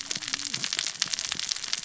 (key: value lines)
label: biophony, cascading saw
recorder: SoundTrap 600 or HydroMoth